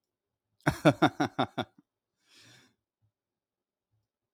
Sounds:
Laughter